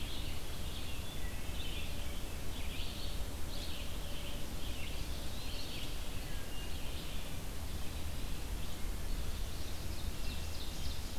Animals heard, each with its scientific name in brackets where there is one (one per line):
Ovenbird (Seiurus aurocapilla)
Wood Thrush (Hylocichla mustelina)
Eastern Wood-Pewee (Contopus virens)
Red-eyed Vireo (Vireo olivaceus)